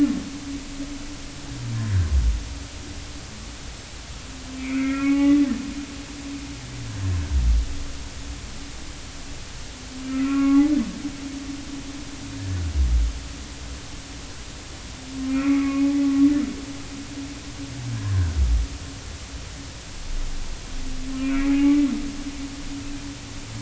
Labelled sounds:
4.6	5.4	humpback whale, 0.80 to 2.6 kHz
10.1	10.7	humpback whale, 0.80 to 2.7 kHz
15.3	15.9	humpback whale, 1.1 to 2.6 kHz
17.9	18.3	humpback whale, 1.4 to 1.8 kHz
21.2	21.8	humpback whale, 0.80 to 2.5 kHz

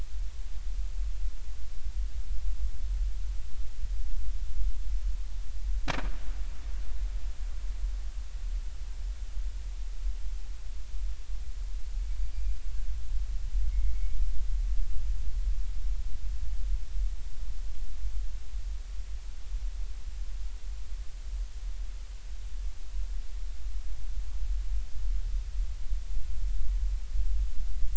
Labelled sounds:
12.3	12.6	killer whale, Bigg's (transient), 4.6 to 4.9 kHz
13.6	14.2	killer whale, Bigg's (transient), 2.0 to 2.3 kHz

